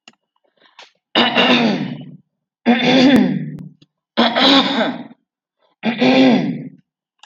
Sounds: Throat clearing